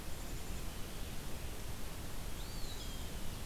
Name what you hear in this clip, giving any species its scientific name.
Contopus virens